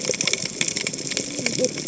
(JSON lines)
{"label": "biophony, cascading saw", "recorder": "HydroMoth"}